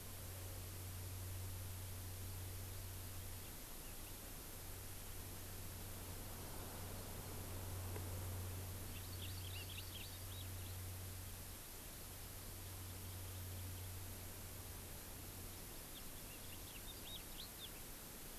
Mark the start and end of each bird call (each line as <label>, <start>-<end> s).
Hawaii Amakihi (Chlorodrepanis virens), 8.8-10.2 s
House Finch (Haemorhous mexicanus), 8.8-10.8 s
House Finch (Haemorhous mexicanus), 15.8-17.8 s